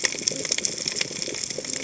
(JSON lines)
{"label": "biophony, cascading saw", "recorder": "HydroMoth"}